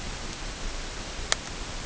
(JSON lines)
{"label": "ambient", "recorder": "HydroMoth"}